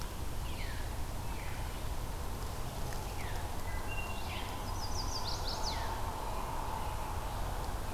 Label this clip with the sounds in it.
Veery, Wood Thrush, Chestnut-sided Warbler